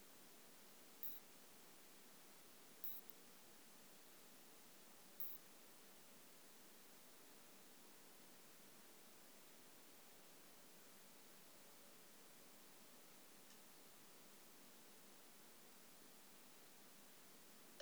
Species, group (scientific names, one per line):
Isophya modestior
Orthoptera